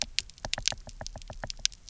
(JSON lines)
{"label": "biophony, knock", "recorder": "SoundTrap 300"}